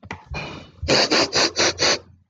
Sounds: Sniff